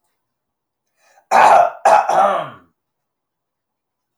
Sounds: Throat clearing